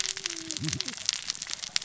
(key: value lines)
label: biophony, cascading saw
recorder: SoundTrap 600 or HydroMoth